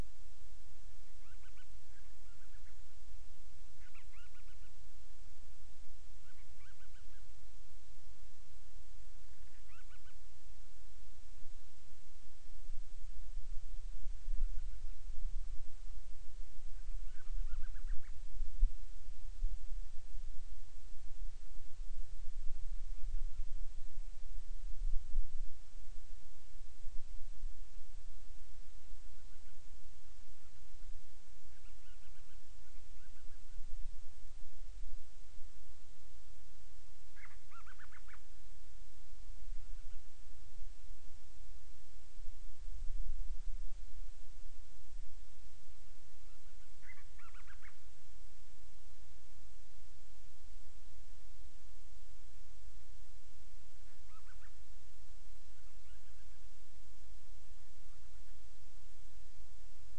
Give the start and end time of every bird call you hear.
1.0s-3.0s: Band-rumped Storm-Petrel (Hydrobates castro)
3.7s-4.8s: Band-rumped Storm-Petrel (Hydrobates castro)
6.2s-7.3s: Band-rumped Storm-Petrel (Hydrobates castro)
9.4s-10.3s: Band-rumped Storm-Petrel (Hydrobates castro)
14.3s-15.2s: Band-rumped Storm-Petrel (Hydrobates castro)
16.9s-18.2s: Band-rumped Storm-Petrel (Hydrobates castro)
28.9s-30.1s: Band-rumped Storm-Petrel (Hydrobates castro)
31.4s-33.7s: Band-rumped Storm-Petrel (Hydrobates castro)
37.1s-38.3s: Band-rumped Storm-Petrel (Hydrobates castro)
46.7s-47.8s: Band-rumped Storm-Petrel (Hydrobates castro)
54.0s-54.6s: Band-rumped Storm-Petrel (Hydrobates castro)
55.5s-56.6s: Band-rumped Storm-Petrel (Hydrobates castro)

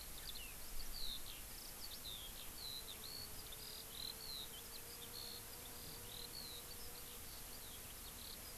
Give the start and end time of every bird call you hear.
0.0s-8.6s: Eurasian Skylark (Alauda arvensis)

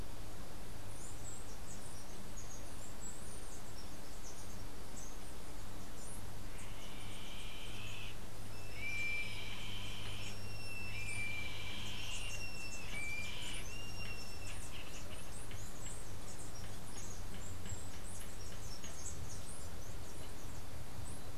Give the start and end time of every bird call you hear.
0.8s-6.9s: Chestnut-capped Brushfinch (Arremon brunneinucha)
6.4s-15.4s: Yellow-headed Caracara (Milvago chimachima)
11.7s-21.3s: Chestnut-capped Brushfinch (Arremon brunneinucha)

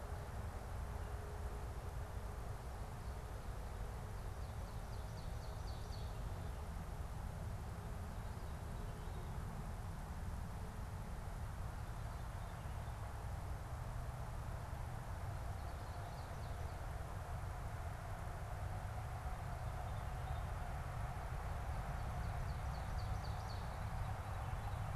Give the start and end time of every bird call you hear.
3.8s-6.3s: Ovenbird (Seiurus aurocapilla)
15.2s-16.9s: Ovenbird (Seiurus aurocapilla)
19.6s-20.7s: unidentified bird
22.0s-23.7s: Ovenbird (Seiurus aurocapilla)
23.4s-25.0s: Veery (Catharus fuscescens)

